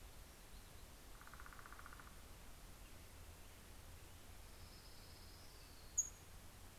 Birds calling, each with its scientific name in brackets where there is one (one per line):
Pacific-slope Flycatcher (Empidonax difficilis)
Orange-crowned Warbler (Leiothlypis celata)
Northern Flicker (Colaptes auratus)